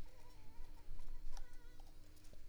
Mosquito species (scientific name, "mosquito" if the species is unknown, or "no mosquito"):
Culex pipiens complex